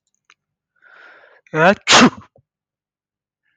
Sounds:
Sneeze